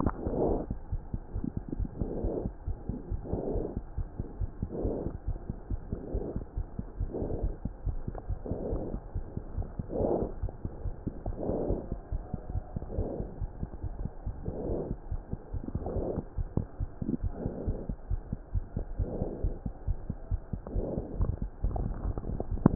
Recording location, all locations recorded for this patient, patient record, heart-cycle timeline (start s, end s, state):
aortic valve (AV)
aortic valve (AV)+pulmonary valve (PV)+tricuspid valve (TV)+mitral valve (MV)
#Age: Child
#Sex: Male
#Height: 92.0 cm
#Weight: 15.6 kg
#Pregnancy status: False
#Murmur: Absent
#Murmur locations: nan
#Most audible location: nan
#Systolic murmur timing: nan
#Systolic murmur shape: nan
#Systolic murmur grading: nan
#Systolic murmur pitch: nan
#Systolic murmur quality: nan
#Diastolic murmur timing: nan
#Diastolic murmur shape: nan
#Diastolic murmur grading: nan
#Diastolic murmur pitch: nan
#Diastolic murmur quality: nan
#Outcome: Abnormal
#Campaign: 2015 screening campaign
0.00	0.75	unannotated
0.75	0.92	diastole
0.92	1.02	S1
1.02	1.13	systole
1.13	1.20	S2
1.20	1.36	diastole
1.36	1.44	S1
1.44	1.56	systole
1.56	1.62	S2
1.62	1.78	diastole
1.78	1.88	S1
1.88	2.00	systole
2.00	2.10	S2
2.10	2.24	diastole
2.24	2.34	S1
2.34	2.46	systole
2.46	2.54	S2
2.54	2.68	diastole
2.68	2.76	S1
2.76	2.88	systole
2.88	2.96	S2
2.96	3.12	diastole
3.12	3.22	S1
3.22	3.32	systole
3.32	3.42	S2
3.42	3.56	diastole
3.56	3.66	S1
3.66	3.76	systole
3.76	3.83	S2
3.83	3.97	diastole
3.97	4.08	S1
4.08	4.18	systole
4.18	4.28	S2
4.28	4.40	diastole
4.40	4.50	S1
4.50	4.62	systole
4.62	4.70	S2
4.70	4.84	diastole
4.84	4.94	S1
4.94	5.04	systole
5.04	5.12	S2
5.12	5.28	diastole
5.28	5.38	S1
5.38	5.48	systole
5.48	5.54	S2
5.54	5.70	diastole
5.70	5.80	S1
5.80	5.92	systole
5.92	6.00	S2
6.00	6.14	diastole
6.14	6.24	S1
6.24	6.36	systole
6.36	6.44	S2
6.44	6.56	diastole
6.56	6.66	S1
6.66	6.77	systole
6.77	6.86	S2
6.86	7.00	diastole
7.00	7.10	S1
7.10	7.21	systole
7.21	7.31	S2
7.31	7.42	diastole
7.42	7.54	S1
7.54	7.64	systole
7.64	7.70	S2
7.70	7.86	diastole
7.86	7.98	S1
7.98	8.07	systole
8.07	8.14	S2
8.14	8.30	diastole
8.30	8.38	S1
8.38	8.50	systole
8.50	8.56	S2
8.56	8.72	diastole
8.72	8.82	S1
8.82	8.94	systole
8.94	9.02	S2
9.02	9.16	diastole
9.16	9.26	S1
9.26	9.36	systole
9.36	9.44	S2
9.44	9.56	diastole
9.56	9.66	S1
9.66	9.78	systole
9.78	9.84	S2
9.84	9.98	diastole
9.98	22.75	unannotated